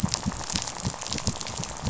{"label": "biophony, rattle", "recorder": "SoundTrap 500"}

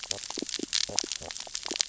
{"label": "biophony, stridulation", "recorder": "SoundTrap 600 or HydroMoth"}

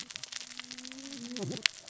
{"label": "biophony, cascading saw", "recorder": "SoundTrap 600 or HydroMoth"}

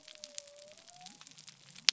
{"label": "biophony", "recorder": "SoundTrap 300"}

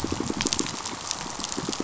{"label": "biophony, pulse", "recorder": "SoundTrap 500"}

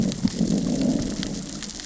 {"label": "biophony, growl", "recorder": "SoundTrap 600 or HydroMoth"}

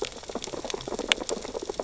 {"label": "biophony, sea urchins (Echinidae)", "recorder": "SoundTrap 600 or HydroMoth"}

